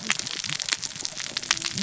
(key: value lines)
label: biophony, cascading saw
recorder: SoundTrap 600 or HydroMoth